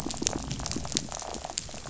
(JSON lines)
{"label": "biophony, rattle", "recorder": "SoundTrap 500"}